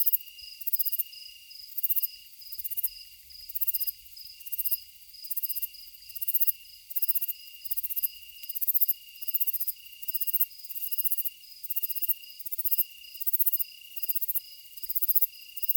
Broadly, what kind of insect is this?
orthopteran